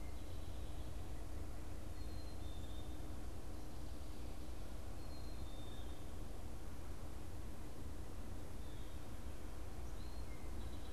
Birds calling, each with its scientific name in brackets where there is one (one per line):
unidentified bird